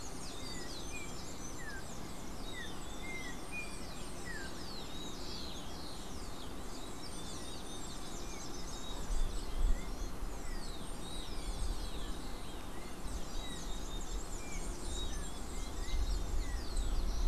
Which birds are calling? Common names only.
Yellow-backed Oriole